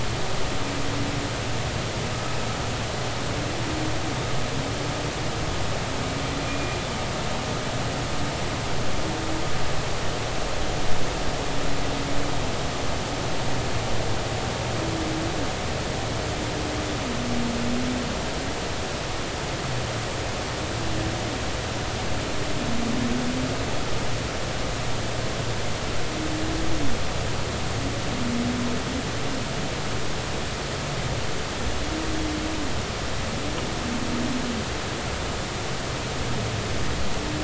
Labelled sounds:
6.5	6.8	humpback whale, 2.4 to 2.5 kHz

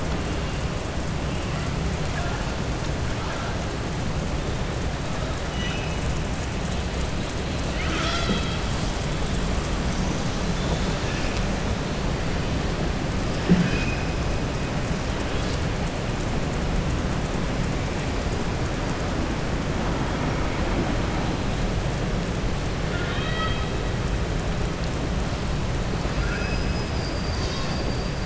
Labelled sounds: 22.8	23.7	killer whale, southern resident, 1.2 to 5.1 kHz
26.1	26.6	killer whale, southern resident, 1.4 to 3.3 kHz

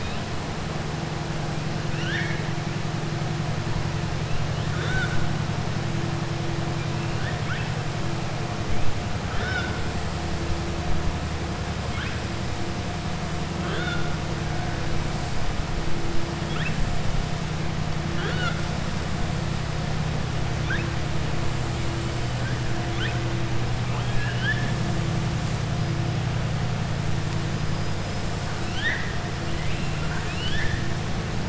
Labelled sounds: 1.8	2.4	killer whale, southern resident, 1.5 to 5.8 kHz
7.1	7.7	killer whale, southern resident, 1.3 to 3.6 kHz
9.2	9.8	killer whale, southern resident, 0.46 to 5.7 kHz
18.0	18.6	killer whale, southern resident, 0.38 to 4.5 kHz
23.8	24.7	killer whale, southern resident, 0.89 to 4.1 kHz
28.6	29.1	killer whale, southern resident, 1.3 to 6.1 kHz
29.5	30.8	killer whale, southern resident, 1.0 to 5.4 kHz

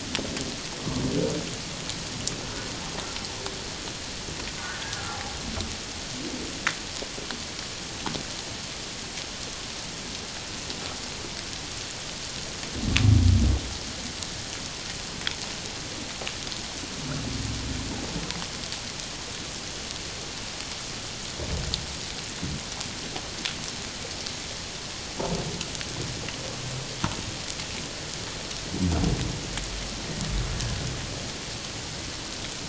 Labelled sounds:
4.9	5.4	humpback whale, 0.78 to 1.5 kHz

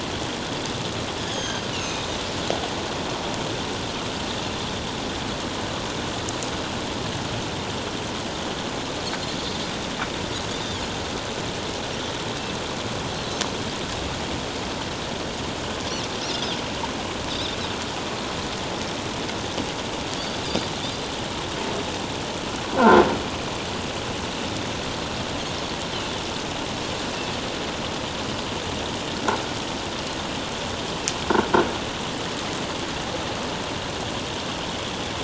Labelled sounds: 1.3	2.1	Pacific white-sided dolphin, 2.4 to 6.6 kHz
16.3	16.6	Pacific white-sided dolphin, 3.0 to 3.9 kHz
17.3	17.6	Pacific white-sided dolphin, 3.4 to 4.0 kHz
22.8	23.0	croaking sound likely from a nearby submerged object, 1.3 to 1.6 kHz

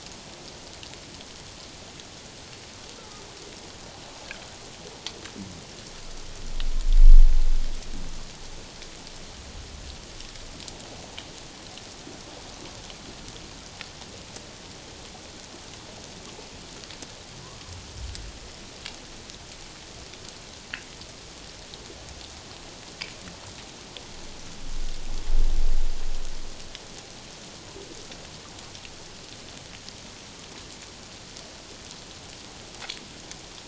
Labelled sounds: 3.0	3.2	humpback whale, 1.1 to 1.4 kHz

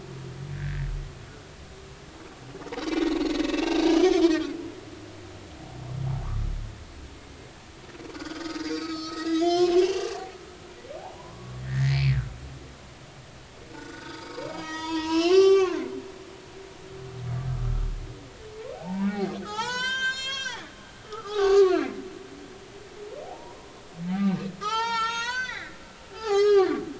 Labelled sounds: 0.6	0.8	humpback whale, 1.5 to 1.9 kHz
2.6	2.8	humpback whale, 0.80 to 0.99 kHz
3.4	3.8	humpback whale, 2.6 to 2.8 kHz
4.2	4.5	humpback whale, 1.3 to 1.7 kHz
8.1	10.3	humpback whale, 0.80 to 6.7 kHz
11.0	12.4	humpback whale, 0.80 to 4.4 kHz
13.7	15.9	humpback whale, 0.80 to 7.0 kHz
18.7	21.8	humpback whale, 0.80 to 8.0 kHz
23.3	23.7	humpback whale, 0.80 to 1.1 kHz
24.1	25.8	humpback whale, 0.80 to 7.0 kHz
26.1	26.8	humpback whale, 0.80 to 5.4 kHz

